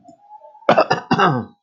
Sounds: Cough